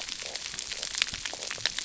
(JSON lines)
{"label": "biophony, stridulation", "recorder": "SoundTrap 300"}